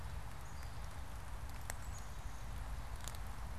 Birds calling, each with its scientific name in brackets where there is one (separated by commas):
Black-capped Chickadee (Poecile atricapillus)